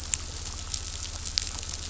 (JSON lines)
{"label": "anthrophony, boat engine", "recorder": "SoundTrap 500"}